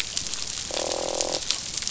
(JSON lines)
{"label": "biophony, croak", "recorder": "SoundTrap 500"}